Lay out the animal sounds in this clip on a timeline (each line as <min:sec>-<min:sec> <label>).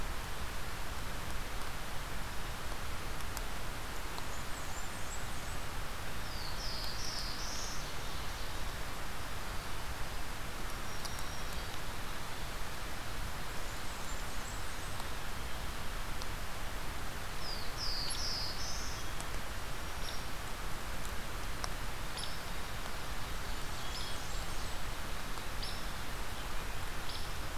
0:03.8-0:05.7 Blackburnian Warbler (Setophaga fusca)
0:05.8-0:07.9 Black-throated Blue Warbler (Setophaga caerulescens)
0:10.4-0:12.0 Black-throated Green Warbler (Setophaga virens)
0:13.6-0:15.2 Blackburnian Warbler (Setophaga fusca)
0:17.2-0:19.1 Black-throated Blue Warbler (Setophaga caerulescens)
0:18.0-0:27.6 Hairy Woodpecker (Dryobates villosus)
0:18.3-0:19.3 Black-capped Chickadee (Poecile atricapillus)
0:23.3-0:25.0 Blackburnian Warbler (Setophaga fusca)
0:23.6-0:24.3 Black-capped Chickadee (Poecile atricapillus)